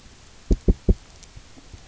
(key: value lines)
label: biophony, knock
recorder: SoundTrap 300